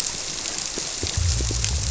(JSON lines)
{"label": "biophony", "recorder": "SoundTrap 300"}